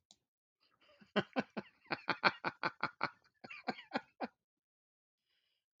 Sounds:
Laughter